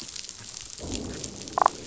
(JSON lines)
{"label": "biophony, damselfish", "recorder": "SoundTrap 500"}